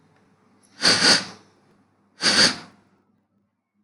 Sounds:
Sniff